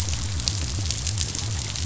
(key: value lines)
label: biophony
recorder: SoundTrap 500